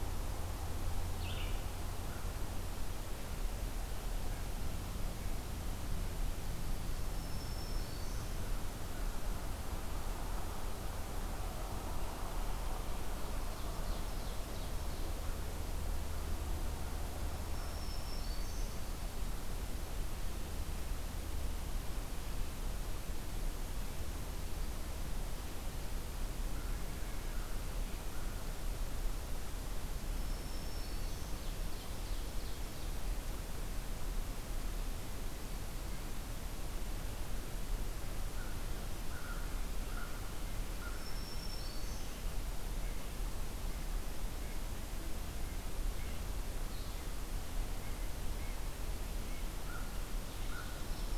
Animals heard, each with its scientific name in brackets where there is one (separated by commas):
American Crow (Corvus brachyrhynchos), Ovenbird (Seiurus aurocapilla), Blue-headed Vireo (Vireo solitarius), Black-throated Green Warbler (Setophaga virens), Red-breasted Nuthatch (Sitta canadensis)